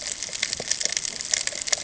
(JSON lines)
{"label": "ambient", "recorder": "HydroMoth"}